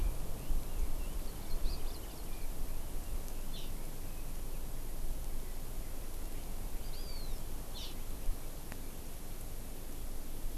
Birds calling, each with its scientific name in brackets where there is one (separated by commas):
Hawaii Amakihi (Chlorodrepanis virens), Red-billed Leiothrix (Leiothrix lutea), Hawaiian Hawk (Buteo solitarius)